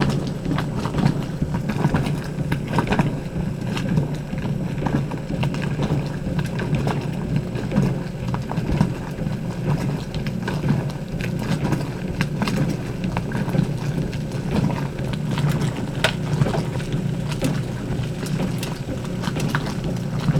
Is the sound repetitive and constant?
yes